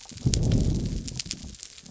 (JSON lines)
{"label": "biophony", "recorder": "SoundTrap 300"}